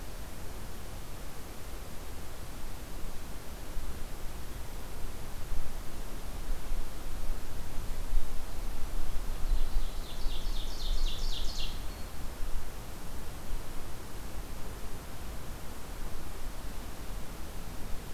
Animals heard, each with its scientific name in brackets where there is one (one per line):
Ovenbird (Seiurus aurocapilla)